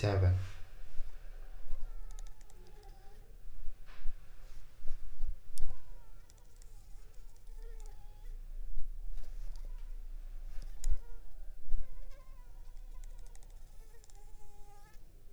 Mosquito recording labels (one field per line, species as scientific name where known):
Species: Anopheles funestus s.s.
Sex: female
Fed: unfed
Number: one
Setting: cup